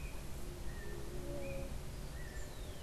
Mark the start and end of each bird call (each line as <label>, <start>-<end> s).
unidentified bird, 0.0-2.8 s
Scrub Tanager (Stilpnia vitriolina), 2.2-2.8 s